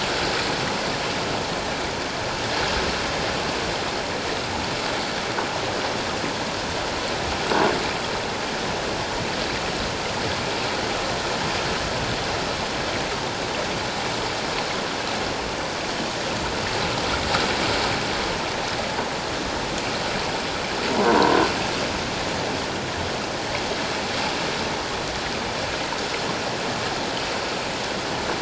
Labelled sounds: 21.1	21.4	croaking sound likely from a nearby submerged object, 0.91 to 1.1 kHz

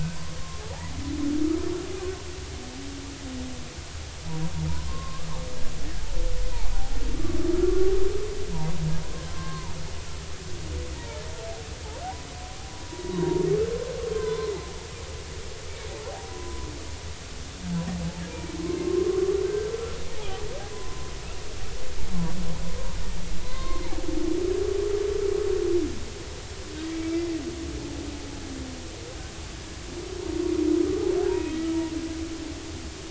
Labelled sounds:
0.6	0.9	humpback whale, 0.80 to 1.0 kHz
4.9	5.3	humpback whale, 0.99 to 1.2 kHz
6.7	7.0	humpback whale, 0.80 to 0.86 kHz
9.3	9.7	humpback whale, 0.86 to 1.7 kHz
10.9	11.2	humpback whale, 0.83 to 0.99 kHz
12.7	13.4	humpback whale, 0.90 to 1.1 kHz
14.2	14.5	humpback whale, 0.96 to 1.1 kHz
16.3	16.7	humpback whale, 0.96 to 1.1 kHz
18.3	19.7	humpback whale, 1.0 to 2.5 kHz
20.7	21.1	humpback whale, 0.96 to 1.1 kHz
23.4	23.8	humpback whale, 0.99 to 4.3 kHz
26.9	27.3	humpback whale, 2.2 to 2.4 kHz
30.8	31.6	humpback whale, 0.80 to 2.6 kHz

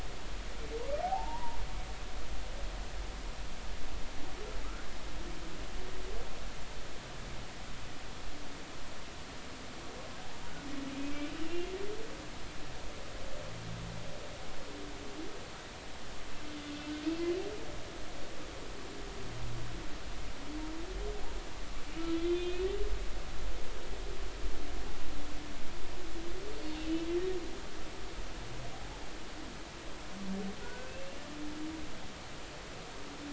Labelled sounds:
1.0	1.6	humpback whale, 0.80 to 1.0 kHz
11.4	11.7	humpback whale, 2.7 to 3.0 kHz
22.2	22.7	humpback whale, 2.4 to 3.8 kHz
26.5	26.8	humpback whale, 4.2 to 4.4 kHz
30.6	31.2	humpback whale, 1.4 to 2.8 kHz

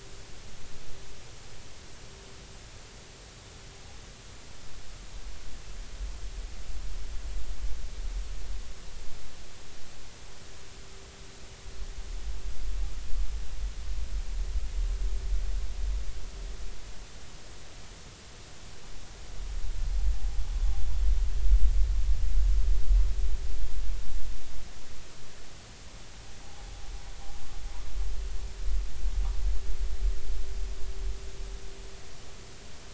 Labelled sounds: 26.4	26.7	noise likely from the mooring, 0.80 to 0.90 kHz

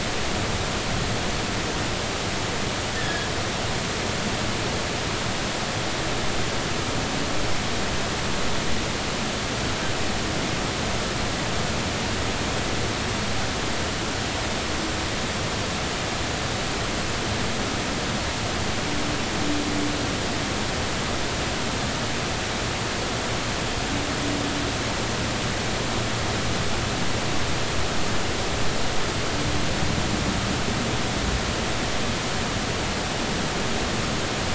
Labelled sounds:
3.0	3.3	humpback whale, 1.6 to 1.9 kHz

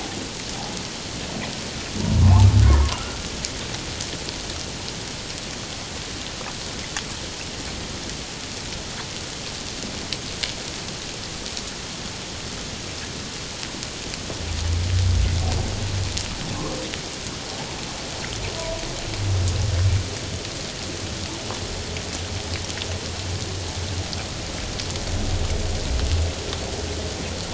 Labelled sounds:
2.2	2.5	humpback whale, 0.78 to 1.2 kHz
18.6	18.8	humpback whale, 0.91 to 1.0 kHz

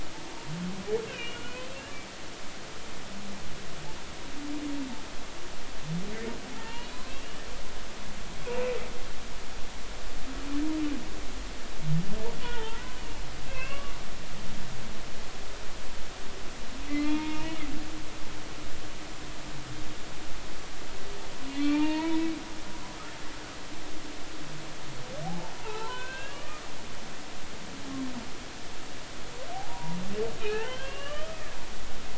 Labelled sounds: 0.2	0.5	humpback whale, 0.90 to 0.99 kHz
1.0	1.7	humpback whale, 1.4 to 3.3 kHz
6.5	7.1	humpback whale, 0.83 to 4.2 kHz
12.4	13.0	humpback whale, 0.83 to 3.2 kHz
13.5	13.9	humpback whale, 1.1 to 2.9 kHz
16.9	17.6	humpback whale, 0.86 to 2.9 kHz
21.5	22.3	humpback whale, 0.86 to 4.4 kHz
25.2	26.6	humpback whale, 0.80 to 4.1 kHz
29.5	31.4	humpback whale, 0.80 to 3.3 kHz

